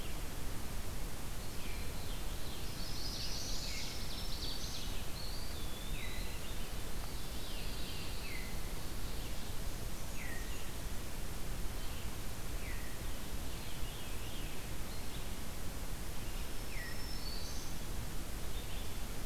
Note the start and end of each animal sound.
[0.00, 19.25] Red-eyed Vireo (Vireo olivaceus)
[2.39, 5.04] Ovenbird (Seiurus aurocapilla)
[2.73, 4.01] Chestnut-sided Warbler (Setophaga pensylvanica)
[5.20, 6.51] Eastern Wood-Pewee (Contopus virens)
[7.00, 8.56] Pine Warbler (Setophaga pinus)
[7.28, 8.70] Veery (Catharus fuscescens)
[13.44, 14.88] Veery (Catharus fuscescens)
[16.53, 17.80] Black-throated Green Warbler (Setophaga virens)

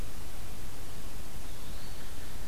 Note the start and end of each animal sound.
[1.27, 2.21] Eastern Wood-Pewee (Contopus virens)

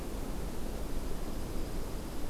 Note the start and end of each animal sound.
[0.84, 2.30] Dark-eyed Junco (Junco hyemalis)

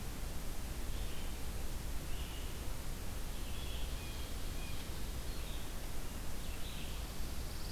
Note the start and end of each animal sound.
[0.00, 7.71] Red-eyed Vireo (Vireo olivaceus)
[3.80, 4.91] Blue Jay (Cyanocitta cristata)

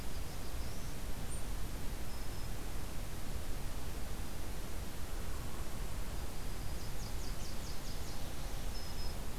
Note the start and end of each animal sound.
[0.00, 0.99] Black-throated Blue Warbler (Setophaga caerulescens)
[2.08, 2.52] Black-throated Green Warbler (Setophaga virens)
[6.08, 7.21] Black-throated Green Warbler (Setophaga virens)
[6.66, 8.29] Nashville Warbler (Leiothlypis ruficapilla)
[8.71, 9.18] Black-throated Green Warbler (Setophaga virens)

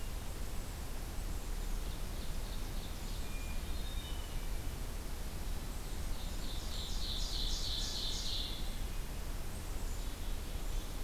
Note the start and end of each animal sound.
[1.65, 3.56] Ovenbird (Seiurus aurocapilla)
[3.00, 4.48] Hermit Thrush (Catharus guttatus)
[5.76, 8.86] Ovenbird (Seiurus aurocapilla)
[9.52, 11.03] Black-capped Chickadee (Poecile atricapillus)

